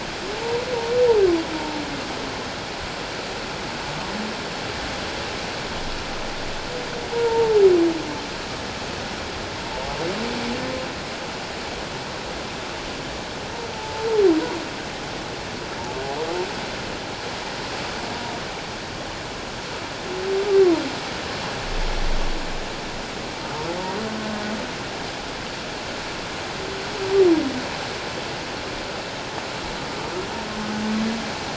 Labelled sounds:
7.1	7.6	humpback whale, 0.78 to 0.97 kHz
13.7	14.1	humpback whale, 0.84 to 0.91 kHz

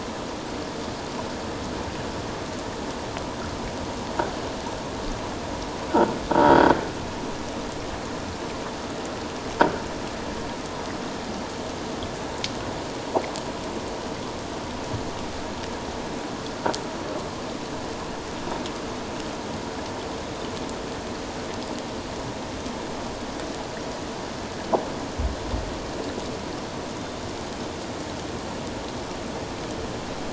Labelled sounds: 6.4	6.7	croaking sound likely from a nearby submerged object, 3.2 to 4.8 kHz

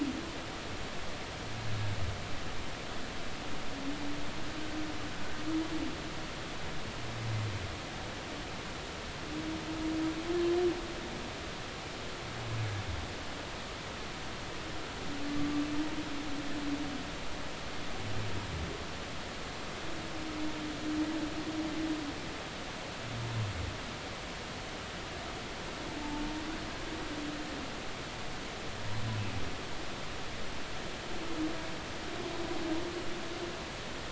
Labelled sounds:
26.0	26.2	humpback whale, 0.83 to 0.93 kHz

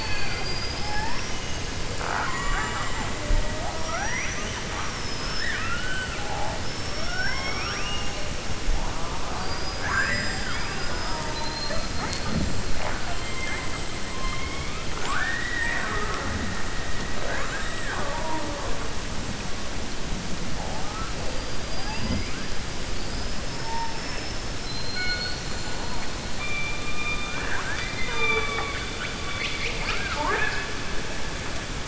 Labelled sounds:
1.9	3.1	killer whale, 0.48 to 7.5 kHz
6.6	8.2	killer whale, 0.66 to 6.6 kHz
26.8	28.8	killer whale, 0.45 to 4.7 kHz
29.2	30.7	killer whale, 0.43 to 5.4 kHz

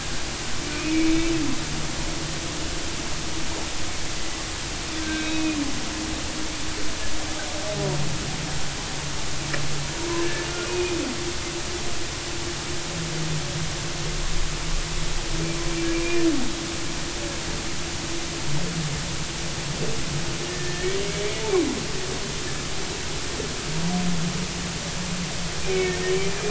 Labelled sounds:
0.7	1.3	humpback whale, 2.2 to 2.6 kHz
5.0	5.6	humpback whale, 1.5 to 3.9 kHz
10.2	11.0	humpback whale, 1.6 to 2.6 kHz
20.5	20.9	humpback whale, 1.7 to 2.0 kHz
25.7	26.0	humpback whale, 2.1 to 2.3 kHz

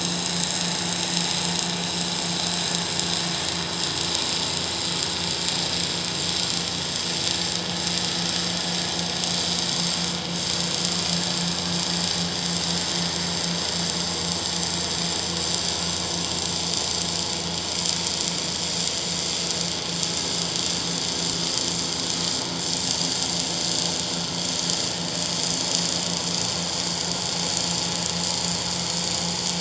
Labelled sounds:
10.0	10.3	vessel noise, 6.7 to 6.9 kHz

